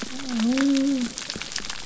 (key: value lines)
label: biophony
recorder: SoundTrap 300